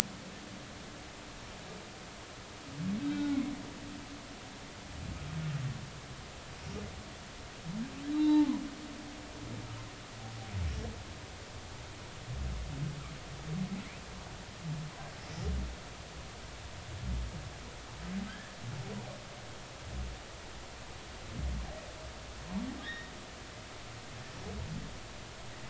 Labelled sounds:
3.0	3.4	humpback whale, 1.4 to 3.8 kHz
8.1	8.5	humpback whale, 0.80 to 4.0 kHz
18.3	18.5	humpback whale, 1.5 to 1.9 kHz
22.8	23.1	humpback whale, 1.6 to 3.8 kHz

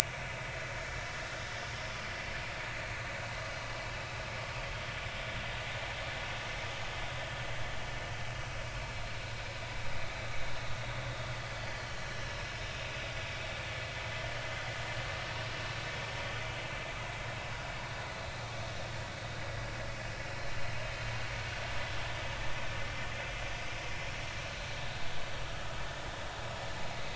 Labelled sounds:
11.7	12.0	vessel noise, 2.9 to 3.2 kHz
12.8	13.0	vessel noise, 3.5 to 3.8 kHz

